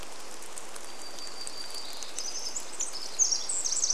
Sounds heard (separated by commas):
rain, Hermit Warbler song, Pacific Wren song